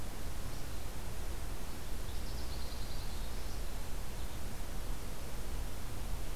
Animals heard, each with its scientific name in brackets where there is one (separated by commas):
American Goldfinch (Spinus tristis), Black-throated Green Warbler (Setophaga virens)